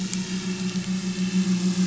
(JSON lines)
{"label": "anthrophony, boat engine", "recorder": "SoundTrap 500"}